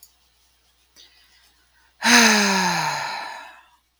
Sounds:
Sigh